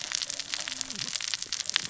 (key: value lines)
label: biophony, cascading saw
recorder: SoundTrap 600 or HydroMoth